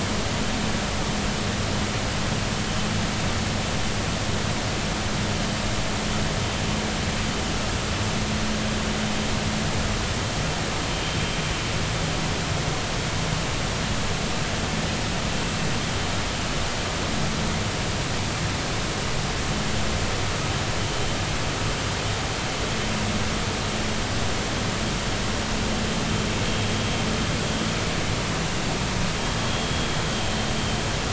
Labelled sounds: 29.4	29.7	vessel noise, 3.2 to 3.4 kHz

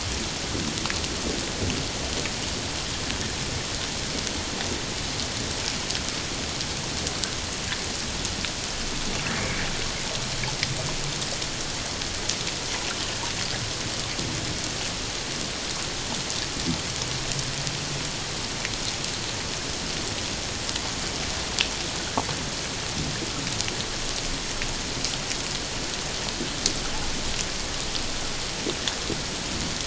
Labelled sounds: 9.4	9.6	water noise, 2.1 to 2.4 kHz

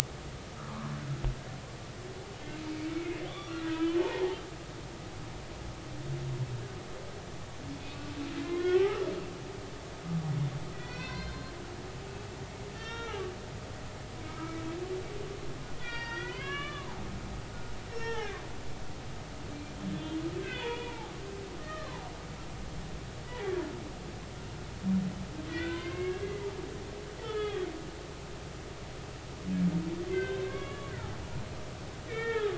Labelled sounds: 0.7	0.9	humpback whale, 1.0 to 1.2 kHz
3.3	4.4	humpback whale, 0.80 to 3.7 kHz
7.8	9.1	humpback whale, 1.2 to 2.7 kHz
10.7	11.5	humpback whale, 0.96 to 4.3 kHz
12.7	13.2	humpback whale, 1.2 to 6.0 kHz
14.3	14.6	humpback whale, 1.2 to 1.4 kHz
15.8	17.0	humpback whale, 0.80 to 5.7 kHz
17.9	19.4	humpback whale, 0.80 to 5.6 kHz
20.4	21.1	humpback whale, 0.80 to 3.7 kHz
21.6	22.0	humpback whale, 0.83 to 1.9 kHz
23.2	23.5	humpback whale, 1.8 to 2.0 kHz
25.5	26.5	humpback whale, 0.96 to 3.7 kHz
27.2	27.7	humpback whale, 1.1 to 3.5 kHz
30.1	30.9	humpback whale, 1.0 to 3.4 kHz
32.1	32.5	humpback whale, 1.2 to 3.7 kHz

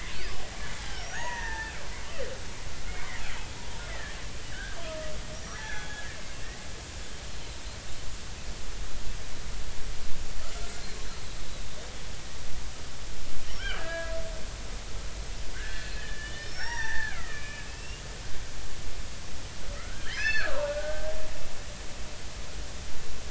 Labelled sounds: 0.8	1.7	killer whale, Bigg's (transient), 0.80 to 5.9 kHz
2.9	3.1	killer whale, Bigg's (transient), 2.0 to 2.4 kHz
4.5	6.2	killer whale, Bigg's (transient), 1.4 to 5.8 kHz
10.6	10.9	killer whale, Bigg's (transient), 6.8 to 7.2 kHz
13.6	14.1	killer whale, Bigg's (transient), 1.2 to 1.7 kHz
15.5	18.0	killer whale, Bigg's (transient), 0.80 to 5.9 kHz
19.7	21.1	killer whale, Bigg's (transient), 0.83 to 6.2 kHz

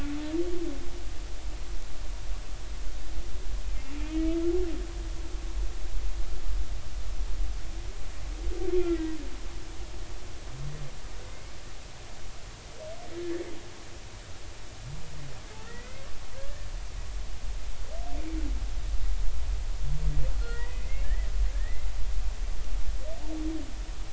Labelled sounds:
4.1	4.4	humpback whale, 2.1 to 2.3 kHz
8.7	9.2	humpback whale, 1.9 to 2.2 kHz
15.6	16.1	humpback whale, 1.8 to 2.2 kHz
20.4	21.9	humpback whale, 1.3 to 2.3 kHz

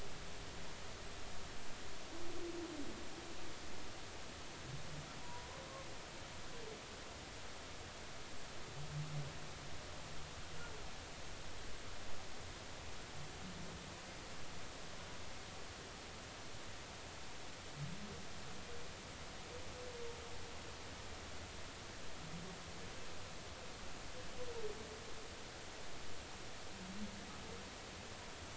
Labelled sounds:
5.2	5.6	humpback whale, 0.90 to 1.1 kHz

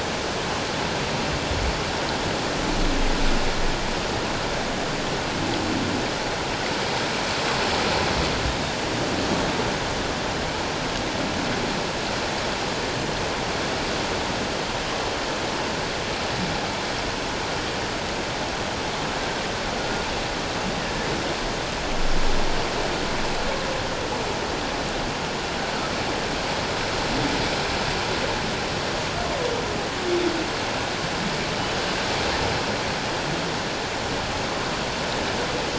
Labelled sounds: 8.5	8.8	humpback whale, 3.6 to 3.8 kHz
19.8	20.0	humpback whale, 1.4 to 1.5 kHz

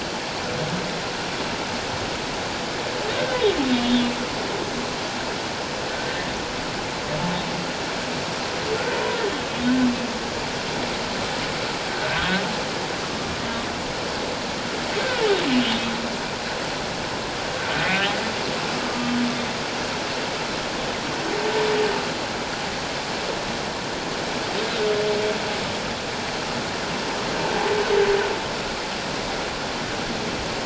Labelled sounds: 3.8	4.1	humpback whale, 3.3 to 3.5 kHz
5.9	6.2	humpback whale, 1.5 to 1.7 kHz
11.9	12.2	humpback whale, 1.4 to 1.6 kHz
18.9	19.1	humpback whale, 1.16 to 1.25 kHz

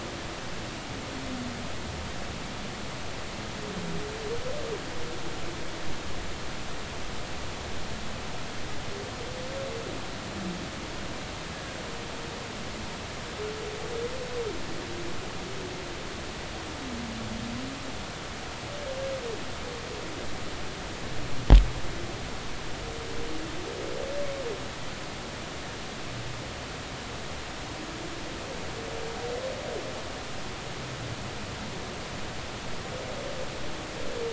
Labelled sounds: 11.5	11.8	humpback whale, 1.5 to 1.7 kHz

